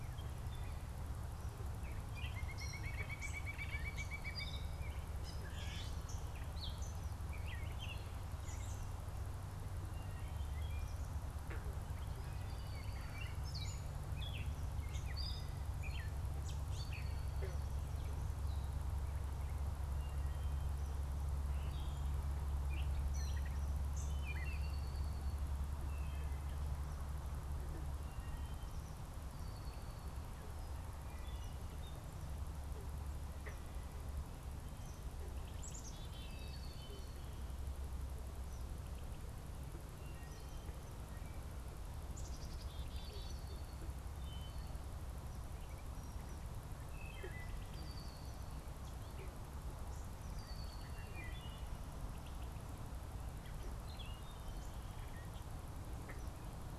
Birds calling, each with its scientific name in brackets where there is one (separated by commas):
Northern Flicker (Colaptes auratus), Gray Catbird (Dumetella carolinensis), Eastern Kingbird (Tyrannus tyrannus), Wood Thrush (Hylocichla mustelina), unidentified bird, Black-capped Chickadee (Poecile atricapillus), Red-winged Blackbird (Agelaius phoeniceus)